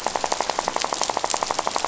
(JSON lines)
{"label": "biophony, rattle", "recorder": "SoundTrap 500"}